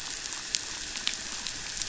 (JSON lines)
{"label": "biophony, damselfish", "recorder": "SoundTrap 500"}